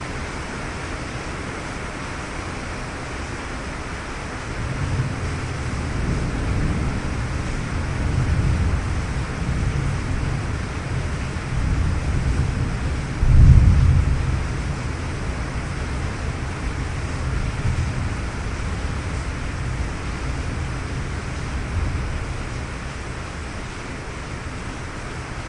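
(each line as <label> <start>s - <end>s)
A steady rain shower with continuous raindrop sounds. 0.0s - 25.5s
A distant thunderstorm rumbles outdoors, emitting deep, echoing thunder. 4.4s - 15.0s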